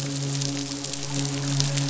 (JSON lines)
{"label": "biophony, midshipman", "recorder": "SoundTrap 500"}